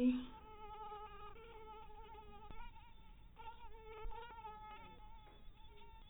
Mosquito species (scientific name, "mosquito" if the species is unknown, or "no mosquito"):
mosquito